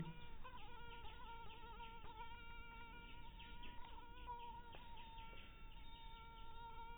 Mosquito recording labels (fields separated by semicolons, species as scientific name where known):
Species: mosquito; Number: one; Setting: cup